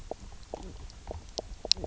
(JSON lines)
{"label": "biophony, knock croak", "recorder": "SoundTrap 300"}